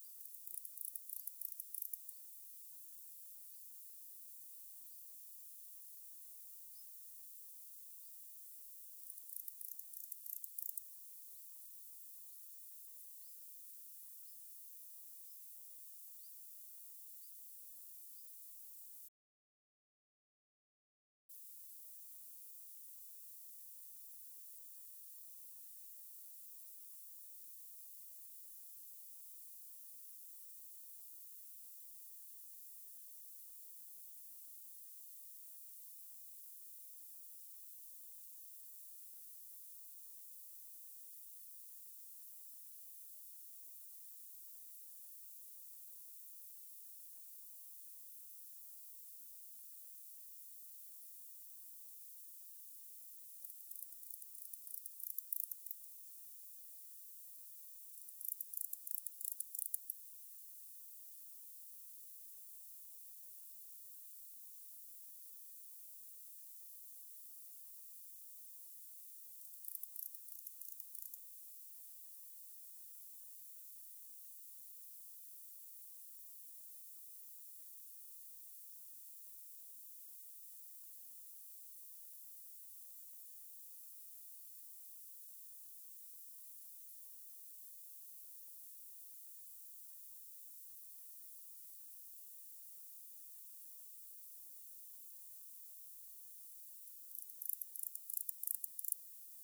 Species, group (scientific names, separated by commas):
Barbitistes ocskayi, Orthoptera